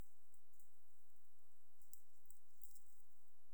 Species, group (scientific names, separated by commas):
Leptophyes punctatissima, Orthoptera